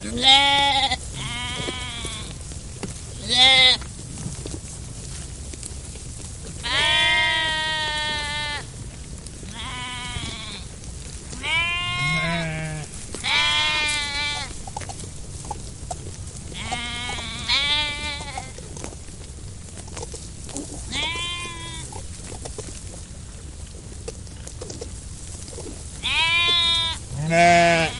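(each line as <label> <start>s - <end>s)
A sheep bleats. 0.0s - 2.4s
A campfire is burning. 0.0s - 28.0s
A sheep bleats. 3.2s - 3.9s
Multiple sheep bleat. 6.6s - 8.7s
A sheep bleats in the distance. 9.4s - 10.8s
Multiple sheep bleat. 11.3s - 14.7s
Multiple sheep bleat. 16.6s - 18.4s
A sheep bleats. 20.8s - 22.0s
A sheep bleats. 26.0s - 28.0s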